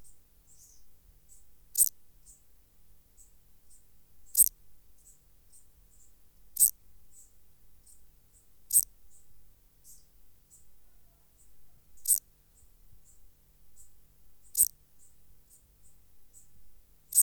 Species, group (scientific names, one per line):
Eupholidoptera garganica
Orthoptera